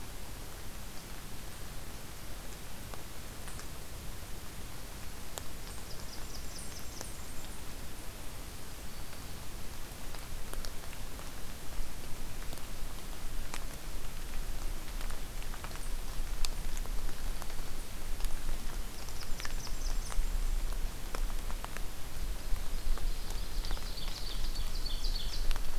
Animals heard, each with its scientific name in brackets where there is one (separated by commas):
Ovenbird (Seiurus aurocapilla), Black-throated Green Warbler (Setophaga virens), Blackburnian Warbler (Setophaga fusca)